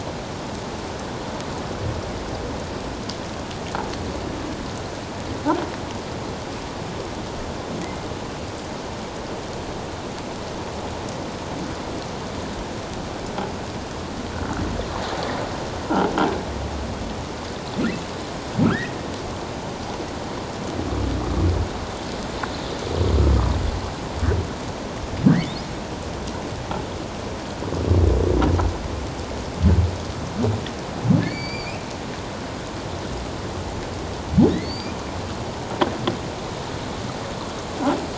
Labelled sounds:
18.6	18.9	humpback whale, 1.2 to 2.0 kHz
25.3	25.5	humpback whale, 1.5 to 2.3 kHz
31.2	31.8	humpback whale, 2.0 to 4.8 kHz
34.5	34.9	humpback whale, 1.7 to 4.8 kHz

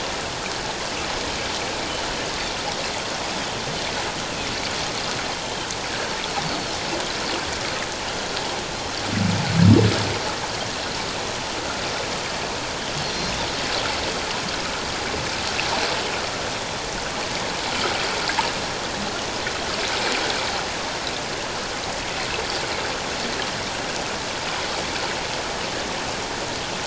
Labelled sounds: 6.4	6.8	Pacific white-sided dolphin, 4.1 to 4.6 kHz
13.0	13.3	Pacific white-sided dolphin, 4.1 to 4.5 kHz

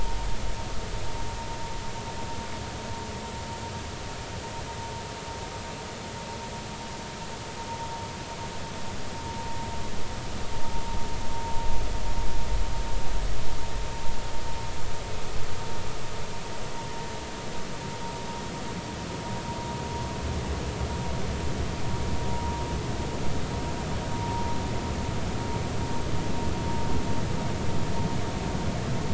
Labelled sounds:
24.1	24.5	vessel noise, 0.90 to 0.99 kHz

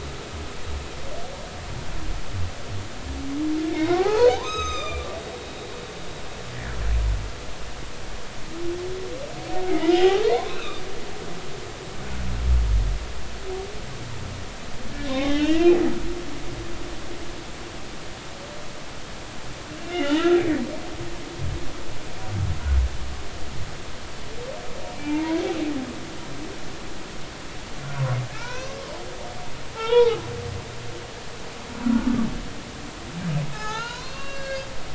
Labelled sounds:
3.7	5.4	humpback whale, 0.80 to 7.7 kHz
6.5	6.8	humpback whale, 1.4 to 2.0 kHz
9.6	10.8	humpback whale, 0.80 to 4.1 kHz
15.0	15.7	humpback whale, 0.80 to 3.8 kHz
19.8	20.4	humpback whale, 1.3 to 3.1 kHz
25.0	25.4	humpback whale, 0.83 to 1.0 kHz
26.0	26.2	humpback whale, 2.3 to 2.4 kHz
28.3	28.8	humpback whale, 0.83 to 6.4 kHz
29.7	30.2	humpback whale, 0.80 to 3.9 kHz
33.5	34.7	humpback whale, 0.80 to 5.0 kHz

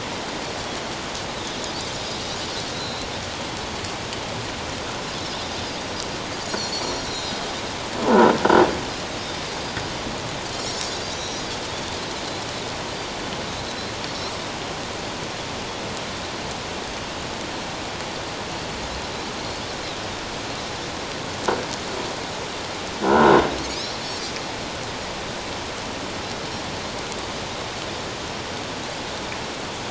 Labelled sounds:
2.7	3.1	Pacific white-sided dolphin, 4.0 to 4.3 kHz
6.5	7.4	Pacific white-sided dolphin, 3.7 to 5.9 kHz
8.0	8.3	croaking sound likely from a nearby submerged object, 0.78 to 1.5 kHz
10.5	11.4	Pacific white-sided dolphin, 3.8 to 6.0 kHz
23.0	23.4	croaking sound likely from a nearby submerged object, 1.3 to 1.6 kHz

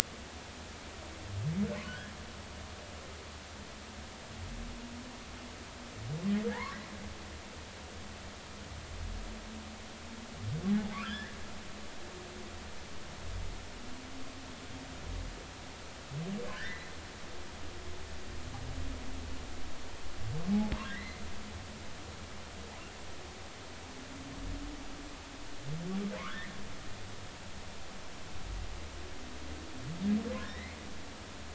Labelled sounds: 1.8	2.1	humpback whale, 1.4 to 1.9 kHz
6.5	6.8	humpback whale, 0.83 to 2.2 kHz
11.0	11.4	humpback whale, 1.2 to 5.3 kHz
16.5	16.9	humpback whale, 1.4 to 2.1 kHz
20.8	21.2	humpback whale, 1.5 to 2.1 kHz
26.2	26.5	humpback whale, 0.96 to 3.7 kHz
30.5	30.8	humpback whale, 1.8 to 2.4 kHz

